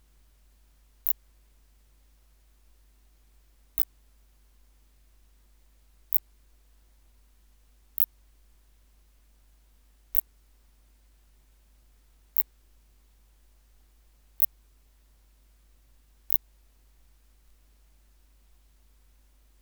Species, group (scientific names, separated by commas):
Phaneroptera nana, Orthoptera